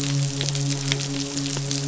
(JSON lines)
{"label": "biophony, midshipman", "recorder": "SoundTrap 500"}